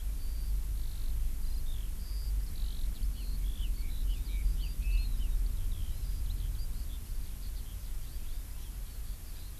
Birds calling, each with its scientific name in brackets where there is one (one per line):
Eurasian Skylark (Alauda arvensis)
Red-billed Leiothrix (Leiothrix lutea)